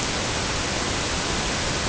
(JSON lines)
{"label": "ambient", "recorder": "HydroMoth"}